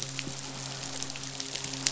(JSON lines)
{"label": "biophony, midshipman", "recorder": "SoundTrap 500"}